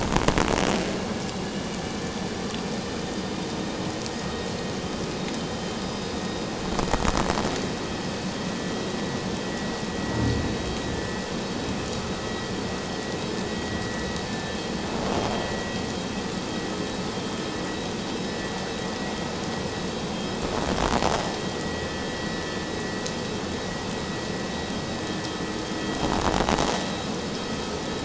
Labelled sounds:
1.5	1.7	vessel noise, 2.8 to 3.0 kHz
14.3	14.5	vessel noise, 1.7 to 1.8 kHz
15.4	15.8	vessel noise, 1.9 to 2.0 kHz
21.6	22.1	vessel noise, 1.7 to 2.0 kHz

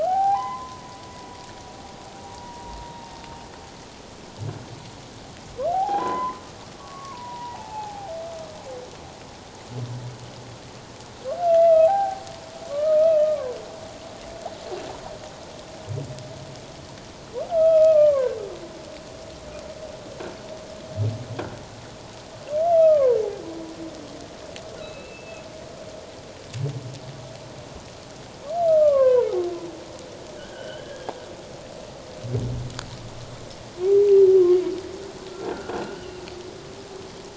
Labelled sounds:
0.0	1.0	humpback whale, 0.78 to 2.1 kHz
2.3	2.8	humpback whale, 0.91 to 0.97 kHz
5.7	8.1	humpback whale, 0.78 to 3.1 kHz
11.5	12.2	humpback whale, 0.78 to 2.8 kHz
12.7	13.6	humpback whale, 0.94 to 1.3 kHz
17.5	18.3	humpback whale, 0.94 to 2.7 kHz
22.7	23.2	humpback whale, 0.91 to 1.4 kHz
24.8	25.4	humpback whale, 2.5 to 4.0 kHz
28.7	31.1	humpback whale, 0.78 to 3.4 kHz
35.4	36.1	croaking sound likely from a nearby submerged object, 1.3 to 1.7 kHz
36.0	36.3	humpback whale, 2.6 to 3.1 kHz

